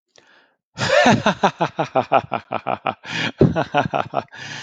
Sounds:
Laughter